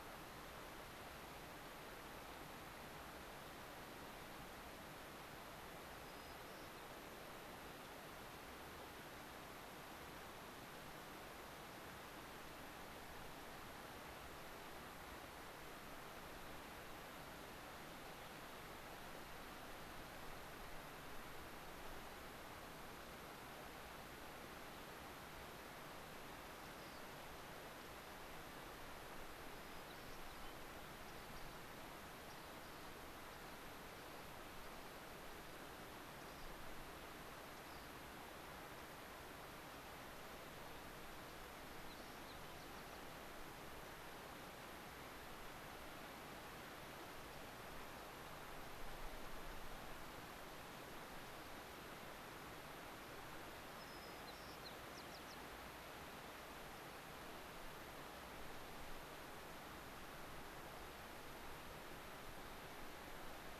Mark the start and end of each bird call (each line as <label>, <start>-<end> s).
White-crowned Sparrow (Zonotrichia leucophrys), 6.0-6.8 s
Rock Wren (Salpinctes obsoletus), 26.6-27.0 s
White-crowned Sparrow (Zonotrichia leucophrys), 29.6-30.6 s
Rock Wren (Salpinctes obsoletus), 31.1-31.6 s
Rock Wren (Salpinctes obsoletus), 32.2-32.9 s
Rock Wren (Salpinctes obsoletus), 33.3-33.6 s
Rock Wren (Salpinctes obsoletus), 33.9-34.2 s
Rock Wren (Salpinctes obsoletus), 34.6-34.9 s
Rock Wren (Salpinctes obsoletus), 36.2-36.5 s
Rock Wren (Salpinctes obsoletus), 37.5-37.9 s
White-crowned Sparrow (Zonotrichia leucophrys), 41.4-43.0 s
White-crowned Sparrow (Zonotrichia leucophrys), 53.8-55.4 s